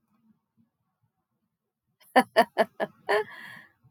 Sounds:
Laughter